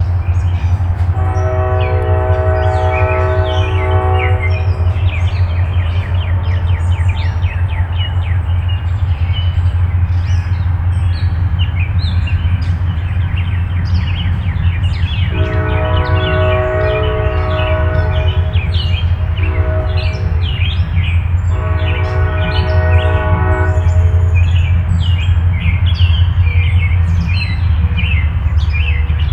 Is this up in the mountains?
no